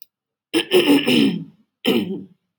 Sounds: Throat clearing